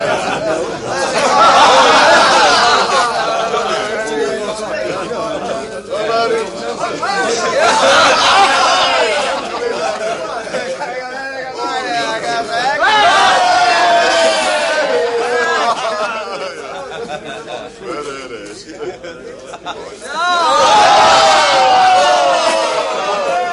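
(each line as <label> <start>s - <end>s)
People chatting and laughing cheerfully indoors. 0.0s - 23.5s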